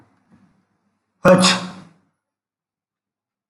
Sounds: Sneeze